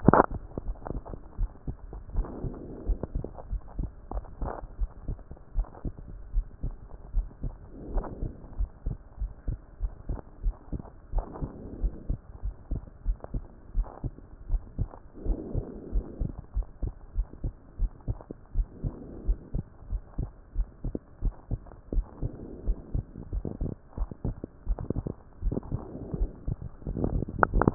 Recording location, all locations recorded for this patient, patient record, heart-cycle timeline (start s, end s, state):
pulmonary valve (PV)
pulmonary valve (PV)+tricuspid valve (TV)+mitral valve (MV)
#Age: Adolescent
#Sex: Male
#Height: 153.0 cm
#Weight: 33.3 kg
#Pregnancy status: False
#Murmur: Absent
#Murmur locations: nan
#Most audible location: nan
#Systolic murmur timing: nan
#Systolic murmur shape: nan
#Systolic murmur grading: nan
#Systolic murmur pitch: nan
#Systolic murmur quality: nan
#Diastolic murmur timing: nan
#Diastolic murmur shape: nan
#Diastolic murmur grading: nan
#Diastolic murmur pitch: nan
#Diastolic murmur quality: nan
#Outcome: Abnormal
#Campaign: 2014 screening campaign
0.00	1.30	unannotated
1.30	1.38	diastole
1.38	1.50	S1
1.50	1.66	systole
1.66	1.76	S2
1.76	2.14	diastole
2.14	2.26	S1
2.26	2.42	systole
2.42	2.54	S2
2.54	2.86	diastole
2.86	2.98	S1
2.98	3.14	systole
3.14	3.24	S2
3.24	3.50	diastole
3.50	3.62	S1
3.62	3.78	systole
3.78	3.90	S2
3.90	4.12	diastole
4.12	4.24	S1
4.24	4.40	systole
4.40	4.52	S2
4.52	4.80	diastole
4.80	4.90	S1
4.90	5.08	systole
5.08	5.18	S2
5.18	5.56	diastole
5.56	5.66	S1
5.66	5.84	systole
5.84	5.94	S2
5.94	6.34	diastole
6.34	6.46	S1
6.46	6.64	systole
6.64	6.74	S2
6.74	7.14	diastole
7.14	7.28	S1
7.28	7.44	systole
7.44	7.52	S2
7.52	7.92	diastole
7.92	8.06	S1
8.06	8.22	systole
8.22	8.32	S2
8.32	8.58	diastole
8.58	8.70	S1
8.70	8.86	systole
8.86	8.96	S2
8.96	9.20	diastole
9.20	9.32	S1
9.32	9.48	systole
9.48	9.58	S2
9.58	9.82	diastole
9.82	9.92	S1
9.92	10.08	systole
10.08	10.18	S2
10.18	10.44	diastole
10.44	10.54	S1
10.54	10.72	systole
10.72	10.82	S2
10.82	11.14	diastole
11.14	11.26	S1
11.26	11.40	systole
11.40	11.50	S2
11.50	11.80	diastole
11.80	11.94	S1
11.94	12.08	systole
12.08	12.18	S2
12.18	12.44	diastole
12.44	12.54	S1
12.54	12.70	systole
12.70	12.82	S2
12.82	13.06	diastole
13.06	13.18	S1
13.18	13.34	systole
13.34	13.44	S2
13.44	13.76	diastole
13.76	13.86	S1
13.86	14.04	systole
14.04	14.12	S2
14.12	14.50	diastole
14.50	14.62	S1
14.62	14.78	systole
14.78	14.88	S2
14.88	15.26	diastole
15.26	15.38	S1
15.38	15.54	systole
15.54	15.64	S2
15.64	15.92	diastole
15.92	16.04	S1
16.04	16.20	systole
16.20	16.32	S2
16.32	16.56	diastole
16.56	16.66	S1
16.66	16.82	systole
16.82	16.92	S2
16.92	17.16	diastole
17.16	17.28	S1
17.28	17.44	systole
17.44	17.52	S2
17.52	17.80	diastole
17.80	17.90	S1
17.90	18.08	systole
18.08	18.18	S2
18.18	18.56	diastole
18.56	18.68	S1
18.68	18.84	systole
18.84	18.92	S2
18.92	19.26	diastole
19.26	19.38	S1
19.38	19.54	systole
19.54	19.64	S2
19.64	19.90	diastole
19.90	20.02	S1
20.02	20.18	systole
20.18	20.30	S2
20.30	20.56	diastole
20.56	20.68	S1
20.68	20.84	systole
20.84	20.94	S2
20.94	21.22	diastole
21.22	21.34	S1
21.34	21.50	systole
21.50	21.60	S2
21.60	21.94	diastole
21.94	22.06	S1
22.06	22.22	systole
22.22	22.32	S2
22.32	22.66	diastole
22.66	22.78	S1
22.78	22.94	systole
22.94	23.04	S2
23.04	23.32	diastole
23.32	23.44	S1
23.44	23.60	systole
23.60	23.72	S2
23.72	23.98	diastole
23.98	24.08	S1
24.08	24.24	systole
24.24	24.36	S2
24.36	24.68	diastole
24.68	24.78	S1
24.78	24.96	systole
24.96	25.06	S2
25.06	25.44	diastole
25.44	25.56	S1
25.56	25.72	systole
25.72	25.80	S2
25.80	26.14	diastole
26.14	27.74	unannotated